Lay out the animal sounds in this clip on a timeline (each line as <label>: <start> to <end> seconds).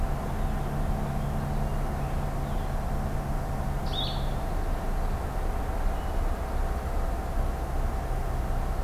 Purple Finch (Haemorhous purpureus): 0.0 to 2.8 seconds
Blue-headed Vireo (Vireo solitarius): 3.8 to 4.2 seconds